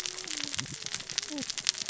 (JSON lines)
{"label": "biophony, cascading saw", "recorder": "SoundTrap 600 or HydroMoth"}